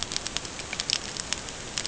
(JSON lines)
{"label": "ambient", "recorder": "HydroMoth"}